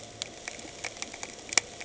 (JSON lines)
{"label": "anthrophony, boat engine", "recorder": "HydroMoth"}